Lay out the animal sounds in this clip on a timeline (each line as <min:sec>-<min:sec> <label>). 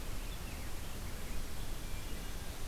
0:00.0-0:02.4 Rose-breasted Grosbeak (Pheucticus ludovicianus)